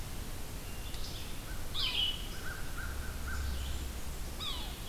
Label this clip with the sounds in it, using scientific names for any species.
Vireo olivaceus, Sphyrapicus varius, Corvus brachyrhynchos, Setophaga fusca